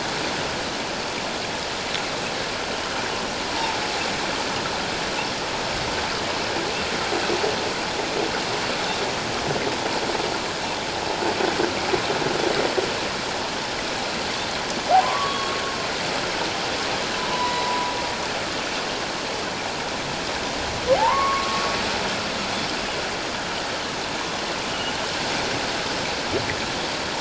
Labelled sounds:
15.0	15.5	humpback whale, 0.91 to 1.2 kHz
17.2	17.9	humpback whale, 0.88 to 4.0 kHz
20.9	21.6	humpback whale, 0.78 to 1.2 kHz
24.7	24.9	humpback whale, 2.8 to 3.0 kHz

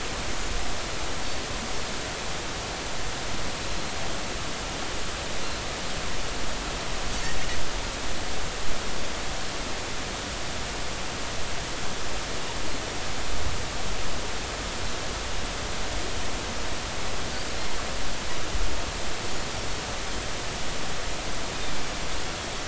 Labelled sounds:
3.7	3.9	Pacific white-sided dolphin, 4.0 to 4.2 kHz

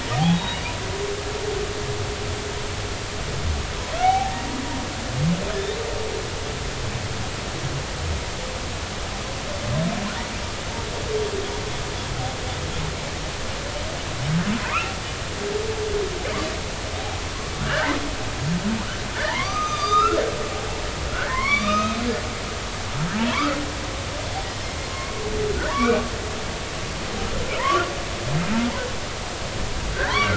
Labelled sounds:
0.3	0.6	humpback whale, 3.7 to 3.9 kHz
4.0	4.4	humpback whale, 0.80 to 0.96 kHz
14.6	14.9	humpback whale, 0.86 to 2.8 kHz
17.6	18.0	humpback whale, 1.3 to 2.1 kHz
19.1	20.2	humpback whale, 0.83 to 4.9 kHz
21.1	22.0	humpback whale, 0.96 to 6.4 kHz
23.3	23.6	humpback whale, 0.90 to 1.5 kHz
24.9	25.2	humpback whale, 1.0 to 1.2 kHz
25.7	26.0	humpback whale, 0.90 to 2.5 kHz
28.6	28.8	humpback whale, 0.90 to 1.2 kHz
29.9	30.2	humpback whale, 1.4 to 2.0 kHz

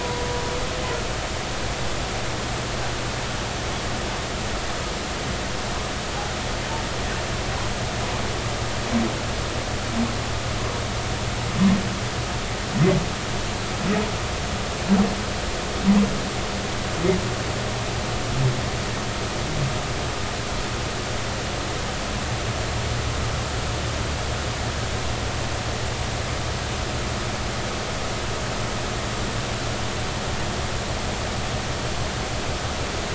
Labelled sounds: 0.0	0.3	humpback whale, 0.93 to 0.99 kHz

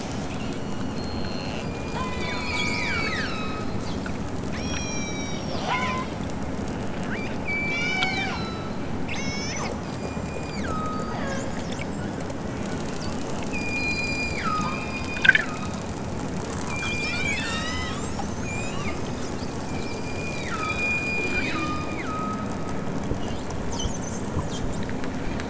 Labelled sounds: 0.3	1.0	killer whale, southern Alaska resident, 2.3 to 7.7 kHz
1.6	3.8	killer whale, southern Alaska resident, 0.78 to 8.0 kHz
4.5	6.4	killer whale, southern Alaska resident, 0.51 to 8.0 kHz
6.9	11.5	killer whale, southern Alaska resident, 0.46 to 8.0 kHz
13.4	15.8	killer whale, southern Alaska resident, 0.83 to 7.8 kHz
16.6	18.1	killer whale, southern Alaska resident, 0.97 to 8.0 kHz
18.4	19.3	killer whale, southern Alaska resident, 1.0 to 8.0 kHz
19.6	22.7	killer whale, southern Alaska resident, 0.92 to 7.8 kHz

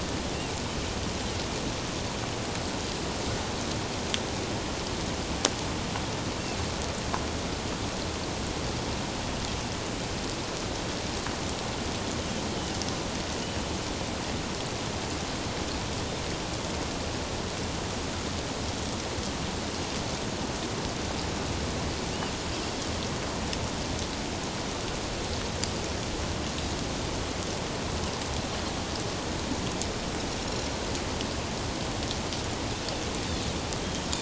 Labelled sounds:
30.4	30.7	Pacific white-sided dolphin, 5.4 to 7.1 kHz

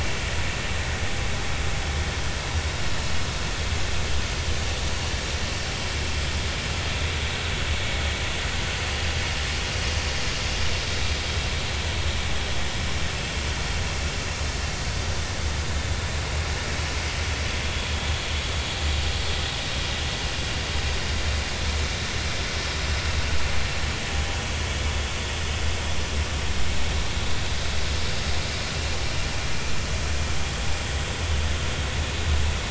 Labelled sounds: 17.6	17.9	vessel noise, 3.3 to 3.5 kHz

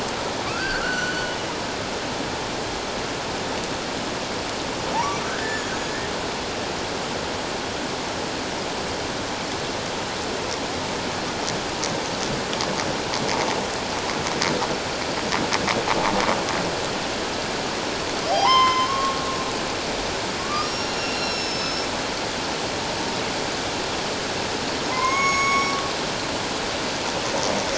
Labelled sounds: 0.4	1.4	humpback whale, 1.1 to 4.6 kHz
4.9	5.7	humpback whale, 0.78 to 7.1 kHz
18.3	19.2	humpback whale, 0.78 to 5.3 kHz
20.4	21.9	humpback whale, 1.1 to 7.0 kHz
24.9	25.7	humpback whale, 0.91 to 6.7 kHz

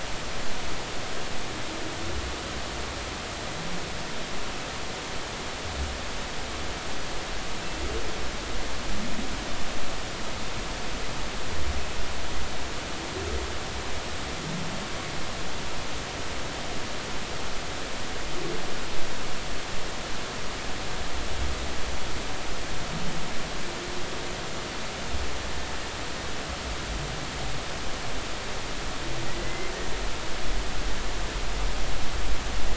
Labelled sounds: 29.3	29.7	humpback whale, 1.9 to 2.1 kHz

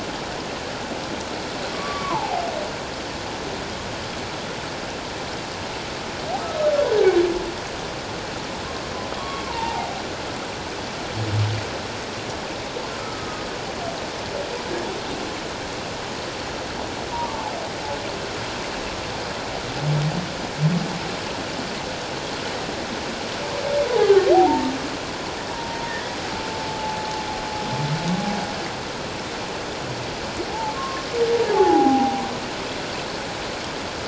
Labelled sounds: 1.7	2.4	humpback whale, 0.78 to 1.2 kHz
6.4	6.7	humpback whale, 1.2 to 1.3 kHz
9.1	9.9	humpback whale, 0.78 to 3.3 kHz
13.0	13.4	humpback whale, 1.2 to 1.3 kHz
17.1	17.4	humpback whale, 0.88 to 1.3 kHz
24.0	24.7	humpback whale, 0.78 to 1.7 kHz
25.5	27.0	humpback whale, 0.81 to 2.0 kHz
30.5	32.2	humpback whale, 0.78 to 1.2 kHz

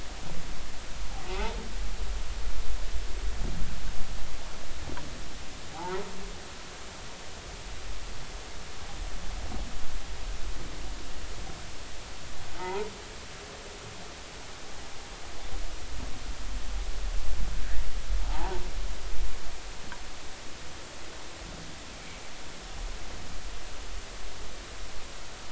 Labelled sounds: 1.2	1.6	humpback whale, 0.80 to 0.99 kHz
5.7	6.0	humpback whale, 0.80 to 1.0 kHz
12.6	12.9	humpback whale, 0.80 to 2.1 kHz
18.3	18.6	humpback whale, 0.80 to 1.0 kHz

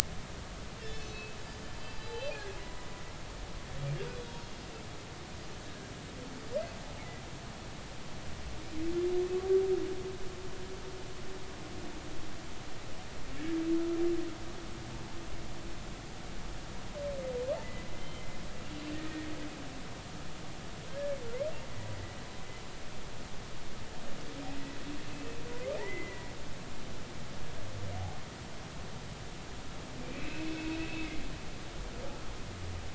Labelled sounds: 0.8	2.9	humpback whale, 0.96 to 5.4 kHz
4.2	4.4	humpback whale, 3.3 to 3.5 kHz
5.7	5.9	humpback whale, 1.6 to 1.8 kHz
17.9	18.4	humpback whale, 2.0 to 3.2 kHz
20.9	21.2	humpback whale, 1.5 to 1.8 kHz
25.1	25.4	humpback whale, 2.5 to 2.8 kHz
25.8	26.3	humpback whale, 1.7 to 2.2 kHz
30.0	31.2	humpback whale, 2.0 to 2.7 kHz

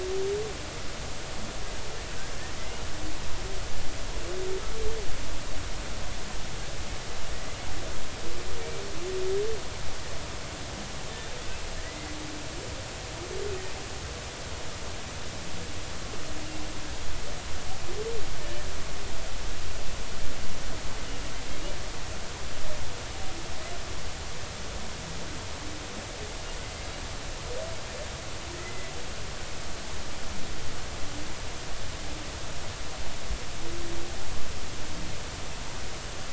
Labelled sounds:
11.8	12.1	humpback whale, 1.9 to 2.1 kHz
28.6	28.9	humpback whale, 2.0 to 2.1 kHz

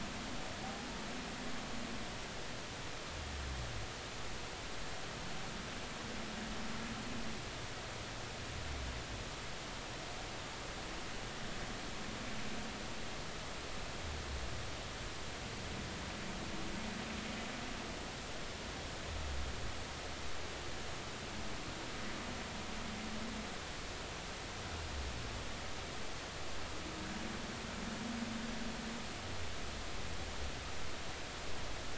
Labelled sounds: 0.6	0.9	humpback whale, 0.80 to 0.86 kHz

